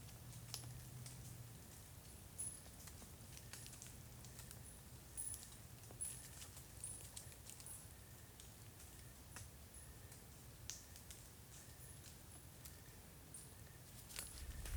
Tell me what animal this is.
Oecanthus fultoni, an orthopteran